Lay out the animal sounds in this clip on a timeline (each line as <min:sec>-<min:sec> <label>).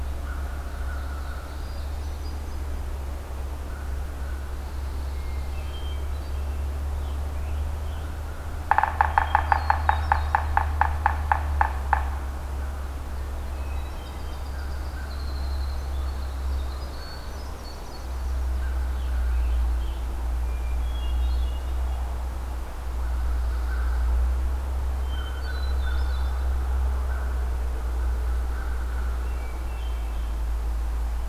0:00.0-0:02.0 Ovenbird (Seiurus aurocapilla)
0:00.2-0:01.8 American Crow (Corvus brachyrhynchos)
0:01.5-0:02.8 Hermit Thrush (Catharus guttatus)
0:03.6-0:04.5 American Crow (Corvus brachyrhynchos)
0:04.3-0:05.8 Pine Warbler (Setophaga pinus)
0:05.1-0:06.5 Hermit Thrush (Catharus guttatus)
0:06.8-0:08.3 American Robin (Turdus migratorius)
0:08.5-0:12.2 Yellow-bellied Sapsucker (Sphyrapicus varius)
0:09.0-0:10.6 Hermit Thrush (Catharus guttatus)
0:13.2-0:14.5 Hermit Thrush (Catharus guttatus)
0:13.4-0:18.4 Winter Wren (Troglodytes hiemalis)
0:16.8-0:18.3 Hermit Thrush (Catharus guttatus)
0:18.7-0:20.1 American Robin (Turdus migratorius)
0:20.4-0:21.8 Hermit Thrush (Catharus guttatus)
0:22.9-0:24.0 American Crow (Corvus brachyrhynchos)
0:24.9-0:26.0 American Crow (Corvus brachyrhynchos)
0:24.9-0:26.5 Hermit Thrush (Catharus guttatus)
0:27.0-0:27.4 American Crow (Corvus brachyrhynchos)
0:28.5-0:29.2 American Crow (Corvus brachyrhynchos)
0:29.0-0:30.4 Hermit Thrush (Catharus guttatus)